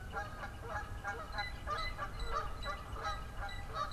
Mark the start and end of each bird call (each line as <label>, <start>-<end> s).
Northern Flicker (Colaptes auratus), 0.0-3.9 s
Canada Goose (Branta canadensis), 0.0-3.9 s
Blue Jay (Cyanocitta cristata), 1.1-3.9 s